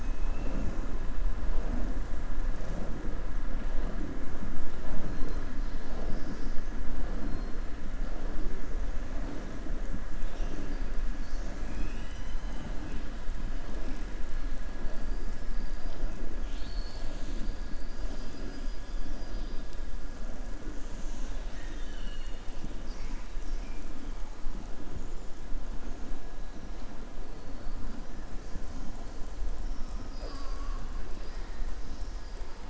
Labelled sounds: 17.6	19.0	killer whale, southern resident, 4.1 to 6.5 kHz
21.2	22.6	killer whale, southern resident, 1.6 to 4.5 kHz

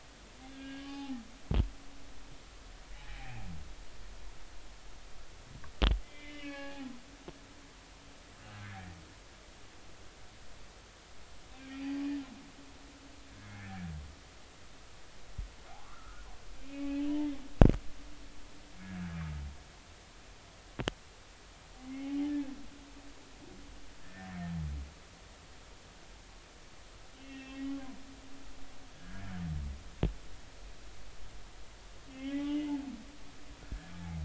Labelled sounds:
0.5	1.2	humpback whale, 0.80 to 2.9 kHz
3.0	3.5	humpback whale, 0.80 to 2.6 kHz
6.0	6.9	humpback whale, 0.80 to 4.3 kHz
11.6	11.9	humpback whale, 2.2 to 2.7 kHz
13.4	13.9	humpback whale, 1.5 to 2.3 kHz
15.8	17.0	humpback whale, 0.96 to 2.7 kHz
21.9	22.1	humpback whale, 2.0 to 2.2 kHz
23.3	24.3	humpback whale, 1.6 to 1.9 kHz
27.2	28.5	humpback whale, 1.8 to 2.8 kHz
28.9	29.2	humpback whale, 1.6 to 1.8 kHz
32.1	32.7	humpback whale, 2.0 to 3.2 kHz

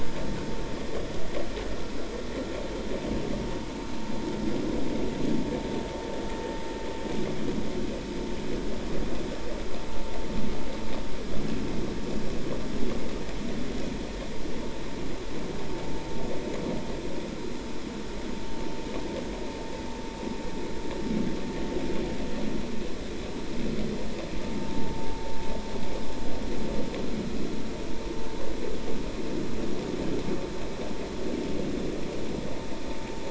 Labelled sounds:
24.6	25.0	vessel noise, 0.83 to 0.96 kHz

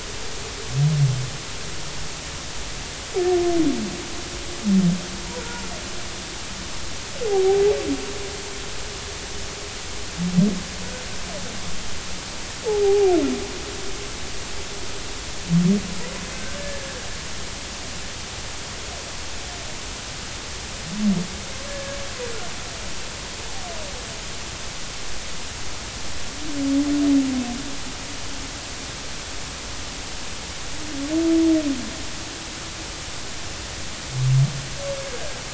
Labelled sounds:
5.4	5.6	humpback whale, 1.3 to 1.5 kHz
7.2	7.6	humpback whale, 0.80 to 0.86 kHz
12.6	13.1	humpback whale, 0.80 to 0.90 kHz
21.7	22.0	humpback whale, 1.6 to 1.8 kHz

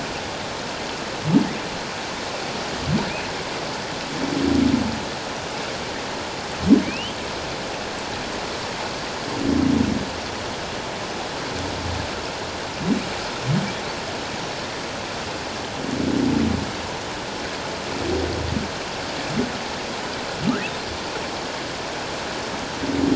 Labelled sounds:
6.8	7.1	humpback whale, 2.0 to 3.2 kHz

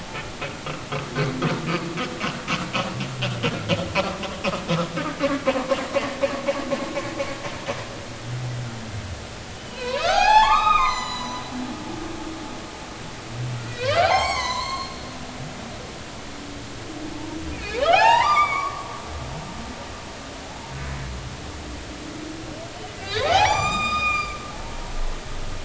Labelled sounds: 9.6	11.5	humpback whale, 0.80 to 7.5 kHz
13.6	14.9	humpback whale, 0.80 to 7.9 kHz
17.8	18.9	humpback whale, 0.80 to 4.9 kHz
23.0	25.0	humpback whale, 0.80 to 7.5 kHz

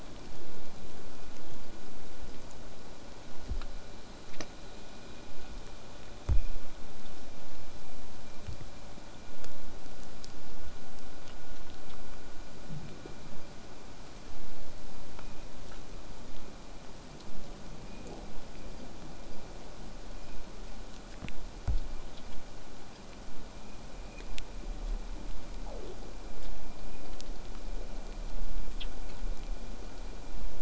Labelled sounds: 16.3	21.3	vessel noise, 0.15 to 8.0 kHz

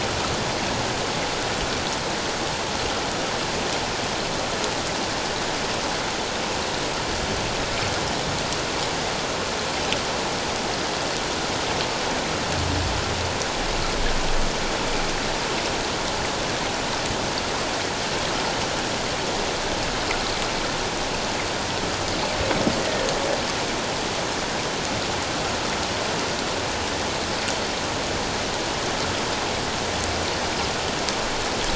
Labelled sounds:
22.8	23.1	humpback whale, 1.8 to 2.0 kHz

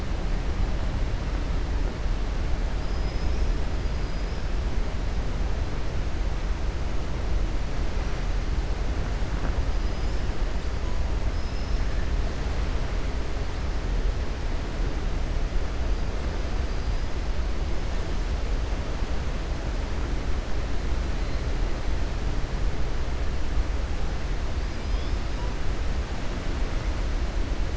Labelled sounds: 2.8	3.5	killer whale, 4.3 to 6.6 kHz
3.8	4.4	killer whale, 4.8 to 5.5 kHz
11.3	11.9	killer whale, 5.1 to 5.8 kHz

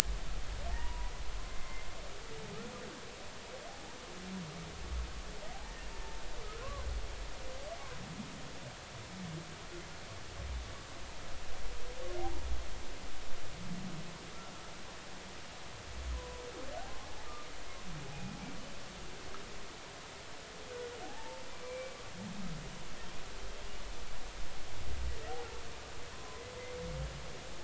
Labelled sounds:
0.7	1.9	humpback whale, 0.80 to 2.1 kHz
3.7	4.0	humpback whale, 0.80 to 0.99 kHz
6.6	6.9	humpback whale, 0.99 to 1.2 kHz
16.1	16.4	humpback whale, 0.93 to 1.1 kHz
21.0	22.0	humpback whale, 0.80 to 2.4 kHz
26.1	26.4	humpback whale, 0.96 to 1.1 kHz

